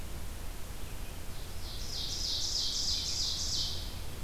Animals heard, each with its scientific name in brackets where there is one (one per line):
Red-eyed Vireo (Vireo olivaceus)
Ovenbird (Seiurus aurocapilla)